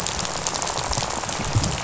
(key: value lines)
label: biophony, rattle
recorder: SoundTrap 500